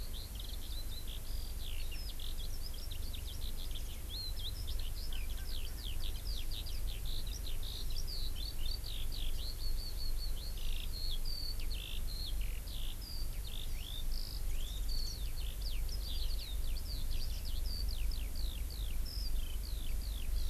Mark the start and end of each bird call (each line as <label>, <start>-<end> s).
Eurasian Skylark (Alauda arvensis), 0.0-20.5 s